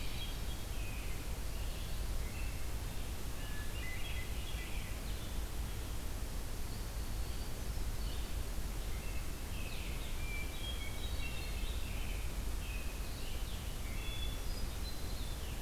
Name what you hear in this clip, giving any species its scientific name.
Catharus guttatus, Turdus migratorius, Vireo solitarius